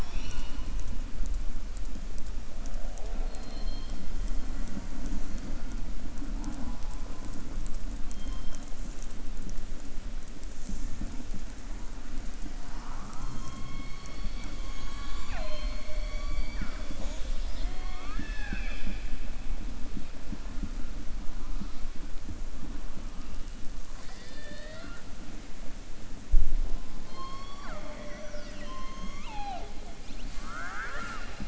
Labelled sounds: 23.8	25.1	killer whale, southern resident, 0.64 to 7.9 kHz
30.3	31.4	killer whale, southern resident, 0.43 to 7.7 kHz

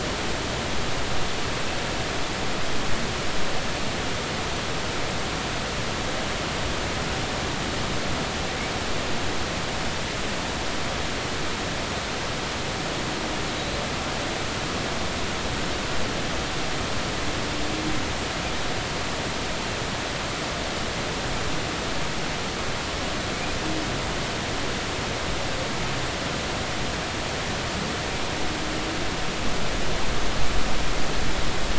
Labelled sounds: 13.5	13.8	humpback whale, 3.8 to 4.1 kHz

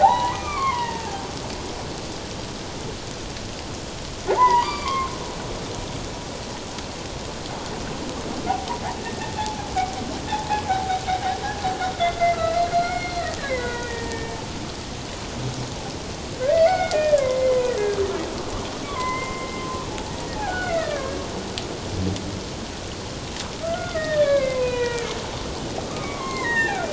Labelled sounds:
0.0	1.2	humpback whale, 0.78 to 2.5 kHz
4.4	5.1	humpback whale, 0.81 to 4.8 kHz
9.0	9.6	humpback whale, 0.78 to 2.0 kHz
10.3	11.0	humpback whale, 0.78 to 0.91 kHz
12.0	14.4	humpback whale, 0.88 to 4.4 kHz
16.5	18.0	humpback whale, 0.97 to 4.5 kHz
18.8	19.9	humpback whale, 0.88 to 2.2 kHz
20.3	21.2	humpback whale, 1.0 to 2.2 kHz
23.6	26.9	humpback whale, 0.88 to 4.1 kHz

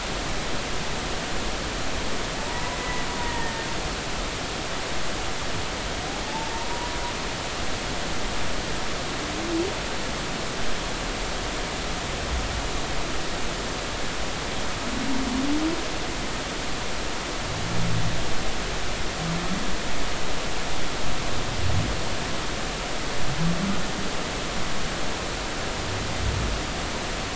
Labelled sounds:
2.4	3.7	humpback whale, 0.83 to 2.0 kHz
6.2	6.9	humpback whale, 0.83 to 1.0 kHz

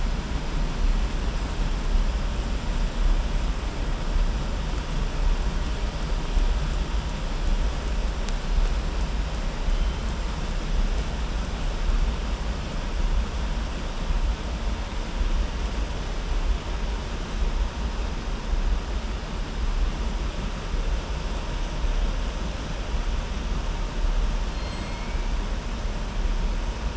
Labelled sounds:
24.4	25.2	killer whale, southern resident, 1.7 to 4.4 kHz

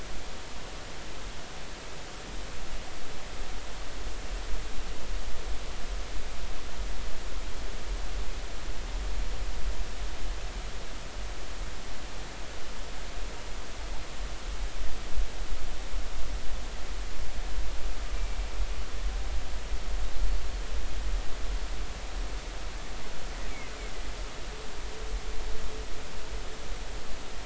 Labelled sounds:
18.1	18.4	killer whale, Bigg's (transient), 2.3 to 2.4 kHz

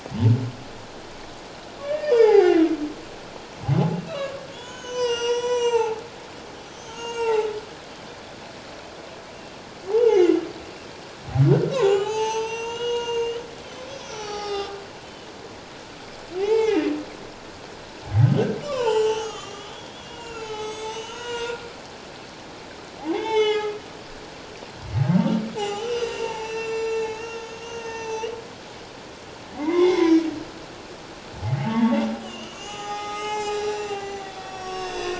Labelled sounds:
1.8	2.6	humpback whale, 0.78 to 5.2 kHz
3.9	6.0	humpback whale, 0.78 to 8.0 kHz
6.9	7.5	humpback whale, 0.81 to 7.9 kHz
9.9	10.4	humpback whale, 0.78 to 3.0 kHz
11.7	13.4	humpback whale, 0.78 to 8.0 kHz
14.0	14.8	humpback whale, 0.78 to 6.2 kHz
16.4	16.9	humpback whale, 0.78 to 3.2 kHz
18.6	21.6	humpback whale, 0.78 to 8.0 kHz
23.1	23.7	humpback whale, 0.78 to 6.7 kHz
25.6	28.3	humpback whale, 0.78 to 8.0 kHz
29.5	30.2	humpback whale, 0.88 to 6.2 kHz
31.6	35.1	humpback whale, 0.78 to 7.7 kHz

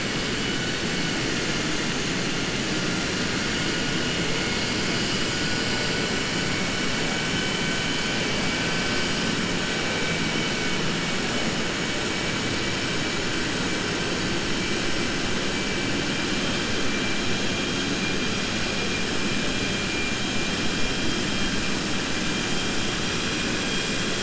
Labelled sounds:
23.4	24.2	vessel noise, 2.4 to 4.1 kHz

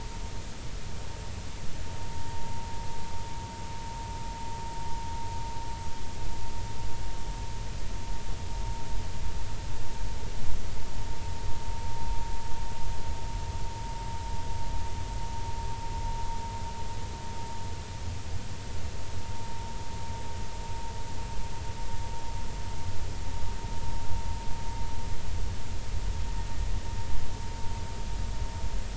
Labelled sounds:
2.0	2.6	vessel noise, 0.86 to 0.99 kHz

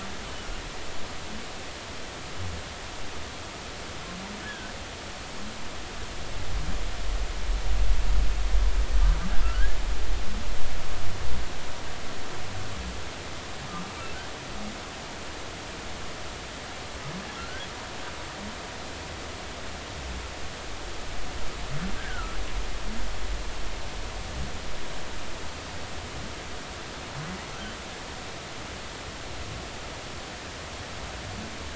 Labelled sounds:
4.4	4.7	humpback whale, 1.5 to 1.8 kHz
9.4	9.8	humpback whale, 1.3 to 1.8 kHz
17.4	17.7	humpback whale, 1.3 to 1.7 kHz
22.0	22.4	humpback whale, 1.2 to 1.8 kHz

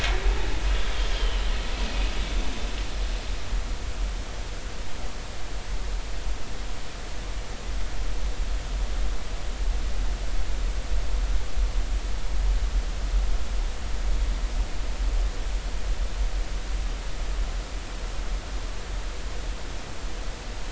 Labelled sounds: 1.1	2.1	vessel noise, 2.4 to 3.3 kHz

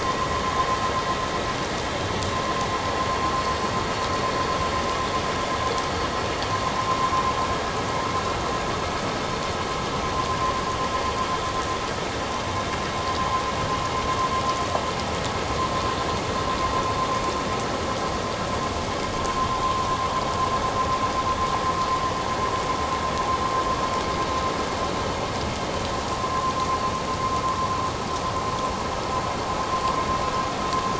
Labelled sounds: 19.6	19.9	vessel noise, 0.97 to 1.2 kHz

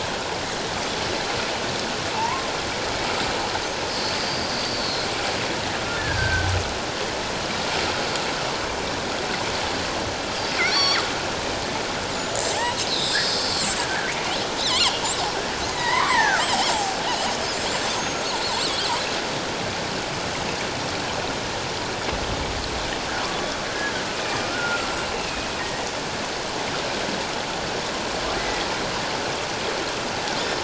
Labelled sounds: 2.1	2.5	killer whale, northern resident, G clan, 0.81 to 1.1 kHz
4.2	5.1	killer whale, northern resident, G clan, 3.8 to 4.8 kHz
5.9	6.5	killer whale, northern resident, G clan, 1.4 to 1.8 kHz
10.6	11.0	killer whale, northern resident, G clan, 3.3 to 6.8 kHz
12.1	13.5	killer whale, northern resident, G clan, 0.78 to 7.2 kHz
14.6	15.0	killer whale, northern resident, G clan, 2.7 to 4.2 kHz
15.7	16.5	killer whale, northern resident, G clan, 0.78 to 2.3 kHz
17.9	18.9	killer whale, northern resident, G clan, 6.4 to 8.0 kHz
24.5	25.1	killer whale, northern resident, G clan, 1.3 to 7.7 kHz
25.6	25.9	killer whale, northern resident, G clan, 1.8 to 2.1 kHz
28.4	28.7	killer whale, northern resident, G clan, 1.8 to 2.1 kHz
30.4	30.6	killer whale, northern resident, G clan, 5.2 to 5.4 kHz

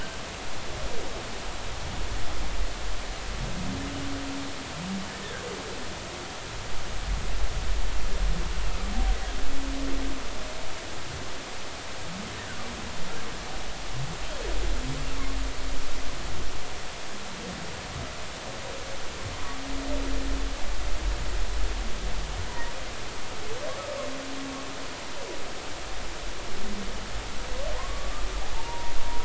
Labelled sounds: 22.5	22.7	humpback whale, 0.90 to 1.1 kHz
27.8	28.9	humpback whale, 0.83 to 1.2 kHz

